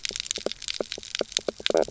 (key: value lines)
label: biophony, knock croak
recorder: SoundTrap 300